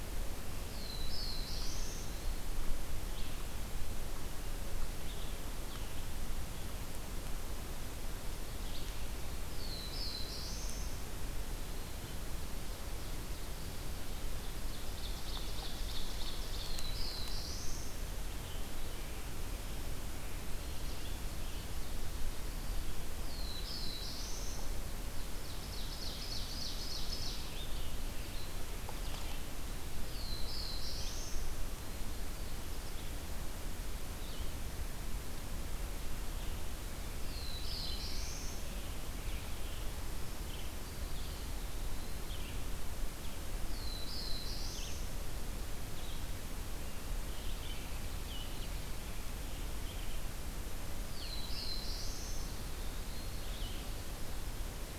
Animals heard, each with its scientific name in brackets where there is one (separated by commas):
Black-throated Blue Warbler (Setophaga caerulescens), Ovenbird (Seiurus aurocapilla)